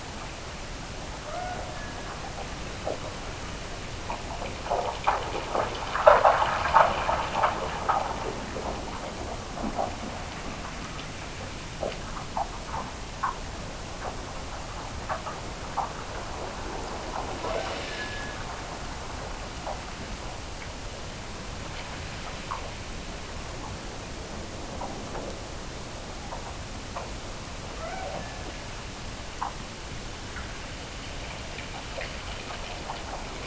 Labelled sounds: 1.1	2.5	killer whale, Bigg's (transient), Gulf of Alaska transient, 0.48 to 2.2 kHz
17.3	18.6	killer whale, Bigg's (transient), Gulf of Alaska transient, 1.1 to 1.8 kHz
27.7	29.0	killer whale, Bigg's (transient), Gulf of Alaska transient, 0.36 to 2.4 kHz

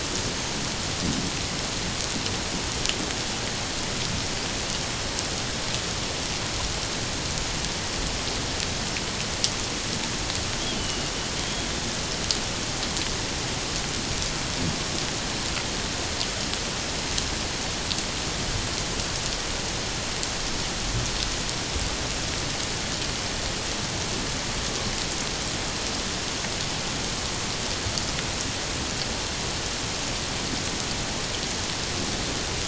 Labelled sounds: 10.6	11.1	killer whale, 2.8 to 3.4 kHz

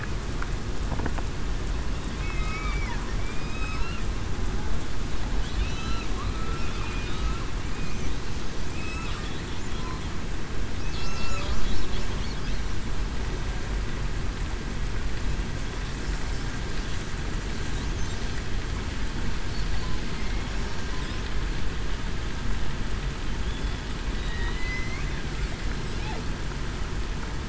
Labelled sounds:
2.2	2.9	killer whale, southern resident, 1.1 to 2.6 kHz
3.2	3.8	killer whale, southern resident, 2.2 to 2.6 kHz
5.6	6.1	killer whale, southern resident, 2.4 to 2.7 kHz
6.3	6.7	killer whale, southern resident, 1.3 to 1.4 kHz
8.7	9.1	killer whale, southern resident, 2.4 to 2.7 kHz
10.8	11.4	killer whale, southern resident, 1.3 to 2.7 kHz
24.5	25.0	killer whale, southern resident, 1.9 to 4.2 kHz

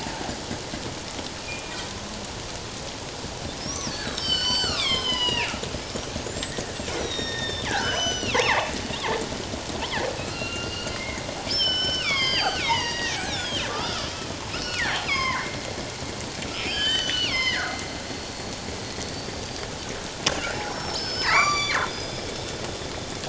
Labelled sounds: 1.4	1.7	killer whale, northern resident, G clan, 2.3 to 2.5 kHz
3.6	8.8	killer whale, northern resident, G clan, 0.78 to 8.0 kHz
10.2	11.2	killer whale, northern resident, G clan, 1.2 to 4.8 kHz
11.5	14.1	killer whale, northern resident, G clan, 0.81 to 8.0 kHz
14.5	15.6	killer whale, northern resident, G clan, 0.88 to 5.7 kHz
16.5	17.8	killer whale, northern resident, G clan, 1.2 to 6.2 kHz
19.0	19.7	killer whale, northern resident, G clan, 4.4 to 4.8 kHz
20.4	22.6	killer whale, northern resident, G clan, 0.88 to 7.1 kHz

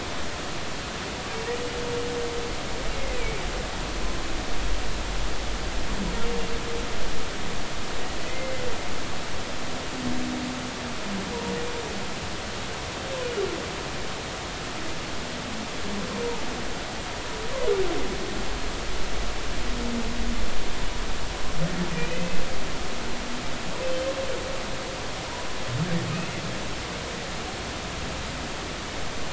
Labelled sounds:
2.9	3.4	humpback whale, 2.0 to 2.6 kHz
8.2	8.7	humpback whale, 2.0 to 2.1 kHz
22.0	22.4	humpback whale, 1.8 to 2.7 kHz

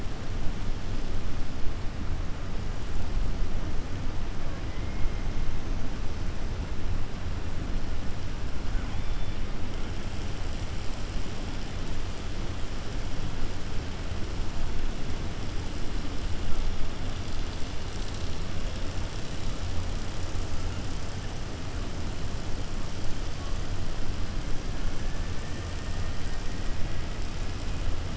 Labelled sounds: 4.7	5.1	killer whale, 2.0 to 3.0 kHz
25.3	25.6	killer whale, 1.2 to 2.3 kHz

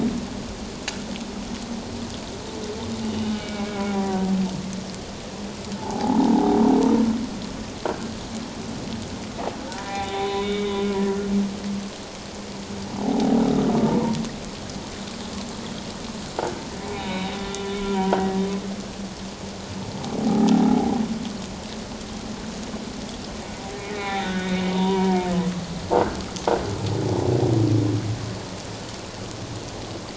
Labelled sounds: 3.1	4.3	humpback whale, 0.78 to 3.0 kHz
5.8	6.5	humpback whale, 0.78 to 1.0 kHz
7.9	8.1	humpback whale, 1.4 to 1.7 kHz
9.7	10.7	humpback whale, 0.78 to 3.9 kHz
13.0	13.7	humpback whale, 0.78 to 1.5 kHz
16.9	18.3	humpback whale, 0.91 to 4.1 kHz
20.3	20.9	humpback whale, 0.78 to 0.97 kHz
23.8	25.2	humpback whale, 0.88 to 3.9 kHz

